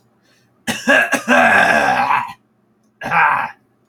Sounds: Throat clearing